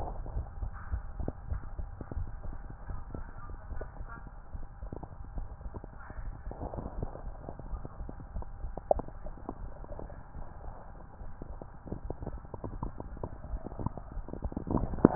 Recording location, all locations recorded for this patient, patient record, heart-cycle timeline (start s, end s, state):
tricuspid valve (TV)
aortic valve (AV)+pulmonary valve (PV)+tricuspid valve (TV)+mitral valve (MV)
#Age: Adolescent
#Sex: Female
#Height: 153.0 cm
#Weight: 56.1 kg
#Pregnancy status: False
#Murmur: Absent
#Murmur locations: nan
#Most audible location: nan
#Systolic murmur timing: nan
#Systolic murmur shape: nan
#Systolic murmur grading: nan
#Systolic murmur pitch: nan
#Systolic murmur quality: nan
#Diastolic murmur timing: nan
#Diastolic murmur shape: nan
#Diastolic murmur grading: nan
#Diastolic murmur pitch: nan
#Diastolic murmur quality: nan
#Outcome: Normal
#Campaign: 2015 screening campaign
0.00	6.72	unannotated
6.72	6.96	diastole
6.96	7.10	S1
7.10	7.24	systole
7.24	7.40	S2
7.40	7.68	diastole
7.68	7.82	S1
7.82	7.98	systole
7.98	8.10	S2
8.10	8.34	diastole
8.34	8.48	S1
8.48	8.62	systole
8.62	8.74	S2
8.74	8.90	diastole
8.90	9.08	S1
9.08	9.23	systole
9.23	9.36	S2
9.36	9.59	diastole
9.59	9.72	S1
9.72	9.86	systole
9.86	9.96	S2
9.96	10.35	diastole
10.35	10.46	S1
10.46	10.65	systole
10.65	10.76	S2
10.76	11.19	diastole
11.19	11.30	S1
11.30	11.46	systole
11.46	11.58	S2
11.58	11.86	diastole
11.86	15.15	unannotated